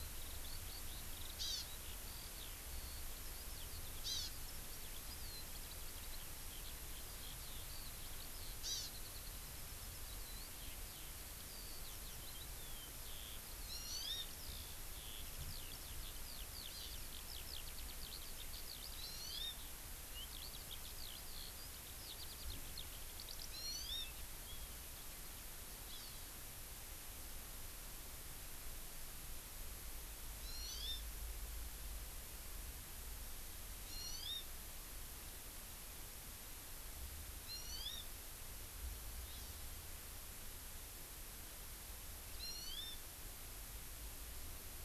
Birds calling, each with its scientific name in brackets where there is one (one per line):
Eurasian Skylark (Alauda arvensis)
Hawaii Amakihi (Chlorodrepanis virens)